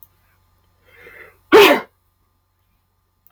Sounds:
Sneeze